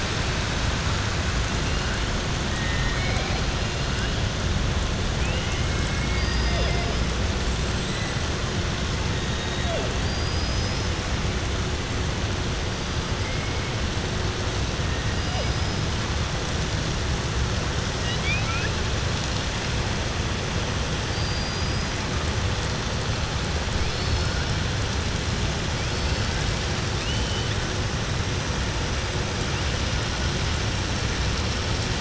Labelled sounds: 2.5	3.4	killer whale, southern resident, 0.77 to 5.0 kHz
5.8	6.3	killer whale, southern resident, 1.6 to 2.3 kHz
10.0	10.9	killer whale, southern resident, 4.1 to 6.1 kHz
17.9	18.7	killer whale, southern resident, 1.3 to 4.7 kHz
21.0	21.9	killer whale, southern resident, 4.6 to 5.0 kHz
26.9	27.5	killer whale, southern resident, 2.5 to 3.7 kHz

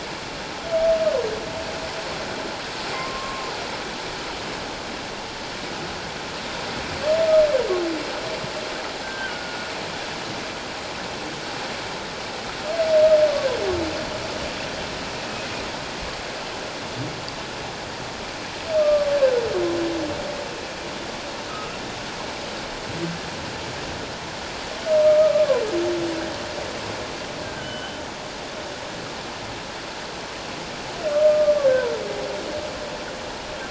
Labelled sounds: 2.9	3.5	humpback whale, 1.0 to 1.2 kHz
9.0	9.7	humpback whale, 1.4 to 1.6 kHz
18.8	19.1	humpback whale, 1.1 to 1.2 kHz
21.5	21.8	humpback whale, 1.2 to 1.4 kHz
25.2	25.6	humpback whale, 0.94 to 1.3 kHz
27.4	28.0	humpback whale, 1.4 to 3.1 kHz
31.3	31.5	humpback whale, 1.1 to 1.2 kHz

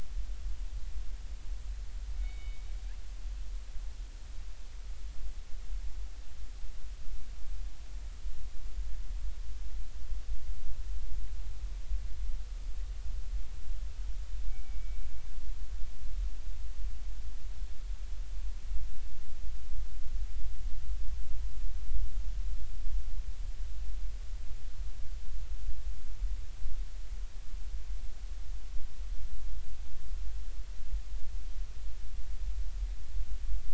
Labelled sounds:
2.2	2.6	killer whale, northern resident, G clan, 2.1 to 3.8 kHz
14.5	15.0	killer whale, northern resident, G clan, 2.2 to 2.4 kHz

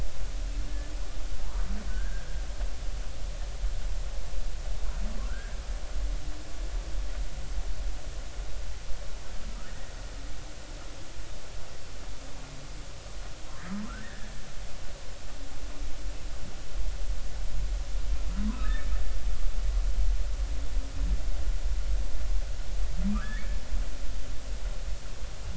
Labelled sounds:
1.4	2.3	humpback whale, 0.86 to 1.7 kHz
5.2	5.6	humpback whale, 1.3 to 1.7 kHz
14.0	14.3	humpback whale, 1.6 to 1.9 kHz
18.5	18.9	humpback whale, 0.96 to 1.9 kHz
23.1	23.4	humpback whale, 1.1 to 2.0 kHz

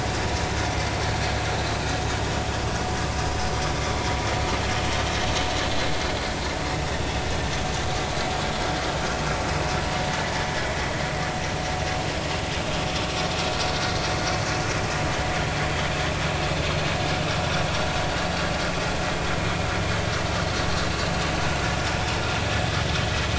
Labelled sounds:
17.4	17.7	vessel noise, 5.5 to 5.7 kHz

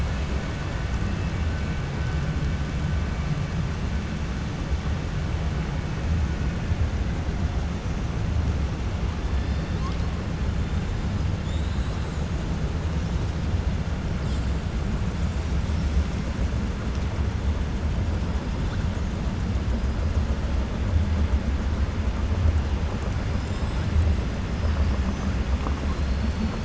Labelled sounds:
11.4	12.0	killer whale, 3.0 to 4.8 kHz

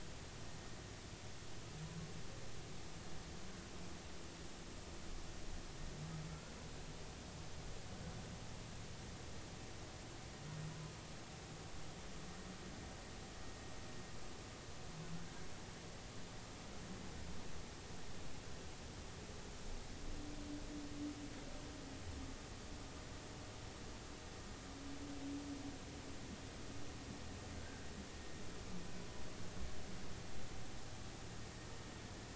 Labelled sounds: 6.3	6.5	humpback whale, 1.3 to 1.5 kHz
27.5	27.9	humpback whale, 1.4 to 1.7 kHz

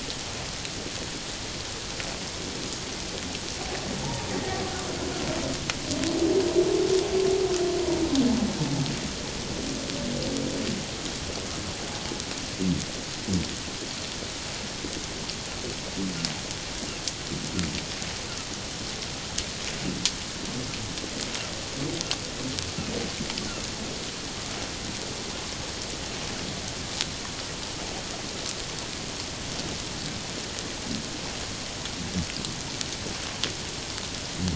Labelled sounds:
4.0	4.3	humpback whale, 0.81 to 1.0 kHz

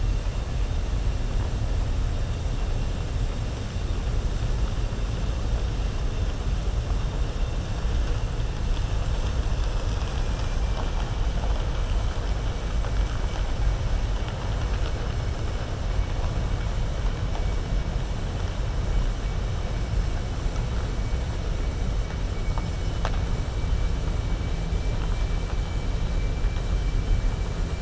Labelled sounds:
9.9	10.6	vessel noise, 1.6 to 3.5 kHz

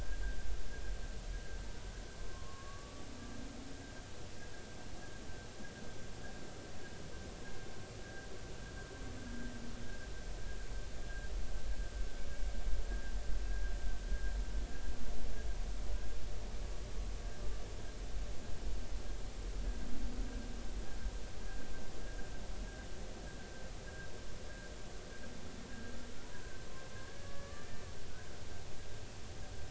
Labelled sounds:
2.2	3.1	humpback whale, 1.0 to 1.2 kHz
11.0	11.3	humpback whale, 1.5 to 1.7 kHz
26.2	27.7	humpback whale, 0.93 to 1.8 kHz

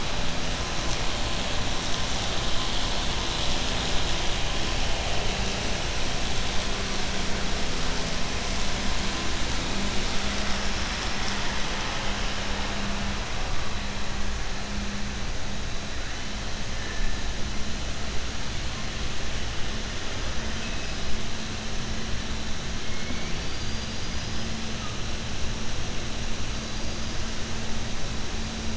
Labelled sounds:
23.3	24.5	killer whale, southern resident, 4.3 to 5.1 kHz

